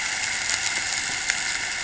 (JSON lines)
{"label": "anthrophony, boat engine", "recorder": "HydroMoth"}